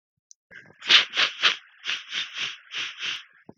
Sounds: Sniff